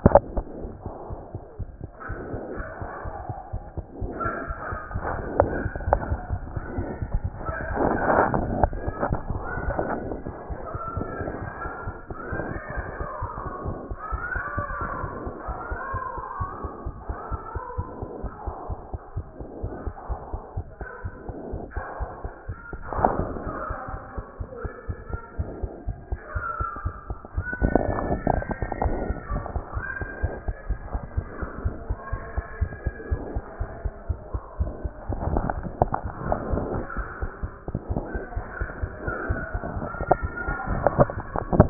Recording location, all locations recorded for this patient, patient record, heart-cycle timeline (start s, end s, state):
aortic valve (AV)
aortic valve (AV)+pulmonary valve (PV)+mitral valve (MV)
#Age: Child
#Sex: Male
#Height: 78.0 cm
#Weight: 12.5 kg
#Pregnancy status: False
#Murmur: Unknown
#Murmur locations: nan
#Most audible location: nan
#Systolic murmur timing: nan
#Systolic murmur shape: nan
#Systolic murmur grading: nan
#Systolic murmur pitch: nan
#Systolic murmur quality: nan
#Diastolic murmur timing: nan
#Diastolic murmur shape: nan
#Diastolic murmur grading: nan
#Diastolic murmur pitch: nan
#Diastolic murmur quality: nan
#Outcome: Abnormal
#Campaign: 2014 screening campaign
0.00	0.54	unannotated
0.54	0.64	diastole
0.64	0.72	S1
0.72	0.86	systole
0.86	0.92	S2
0.92	1.10	diastole
1.10	1.20	S1
1.20	1.34	systole
1.34	1.42	S2
1.42	1.60	diastole
1.60	1.68	S1
1.68	1.82	systole
1.82	1.90	S2
1.90	2.10	diastole
2.10	2.18	S1
2.18	2.32	systole
2.32	2.40	S2
2.40	2.56	diastole
2.56	2.66	S1
2.66	2.80	systole
2.80	2.90	S2
2.90	3.06	diastole
3.06	3.14	S1
3.14	3.28	systole
3.28	3.36	S2
3.36	3.54	diastole
3.54	3.62	S1
3.62	3.76	systole
3.76	3.84	S2
3.84	4.00	diastole
4.00	41.70	unannotated